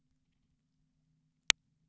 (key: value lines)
label: anthrophony, boat engine
recorder: SoundTrap 300